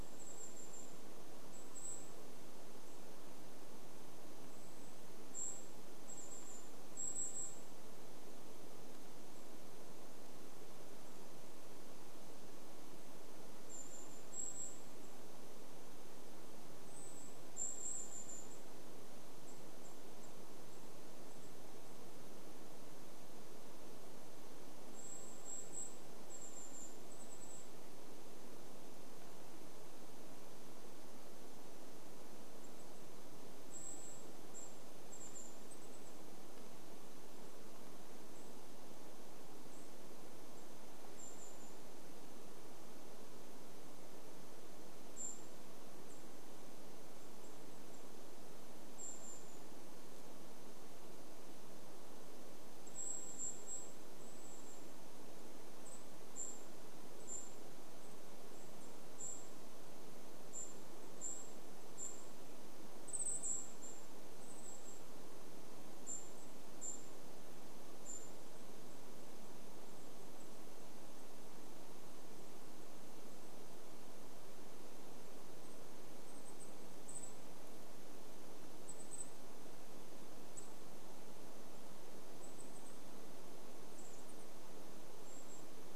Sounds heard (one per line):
Golden-crowned Kinglet call
unidentified sound
Golden-crowned Kinglet song
unidentified bird chip note